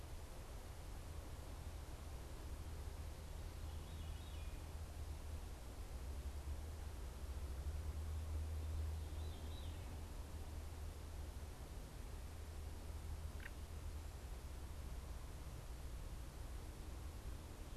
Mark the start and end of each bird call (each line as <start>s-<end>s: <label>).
3.0s-4.8s: Veery (Catharus fuscescens)
8.5s-10.0s: Veery (Catharus fuscescens)